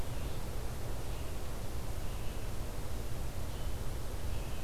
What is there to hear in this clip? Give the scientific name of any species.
Vireo olivaceus